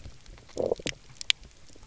{"label": "biophony, low growl", "recorder": "SoundTrap 300"}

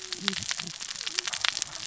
{"label": "biophony, cascading saw", "recorder": "SoundTrap 600 or HydroMoth"}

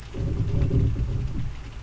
{"label": "biophony, growl", "recorder": "SoundTrap 600 or HydroMoth"}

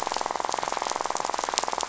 {"label": "biophony, rattle", "recorder": "SoundTrap 500"}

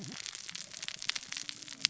{"label": "biophony, cascading saw", "recorder": "SoundTrap 600 or HydroMoth"}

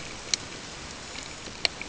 {"label": "ambient", "recorder": "HydroMoth"}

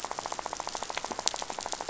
{"label": "biophony, rattle", "recorder": "SoundTrap 500"}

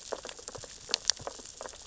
{"label": "biophony, sea urchins (Echinidae)", "recorder": "SoundTrap 600 or HydroMoth"}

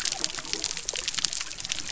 {"label": "biophony", "recorder": "SoundTrap 300"}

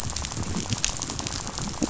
{"label": "biophony, rattle", "recorder": "SoundTrap 500"}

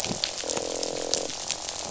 {"label": "biophony, croak", "recorder": "SoundTrap 500"}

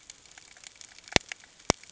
{"label": "ambient", "recorder": "HydroMoth"}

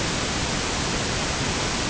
{"label": "ambient", "recorder": "HydroMoth"}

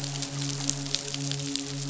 {"label": "biophony, midshipman", "recorder": "SoundTrap 500"}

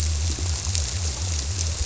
{"label": "biophony", "recorder": "SoundTrap 300"}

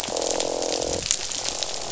{"label": "biophony, croak", "recorder": "SoundTrap 500"}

